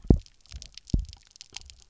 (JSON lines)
{"label": "biophony, double pulse", "recorder": "SoundTrap 300"}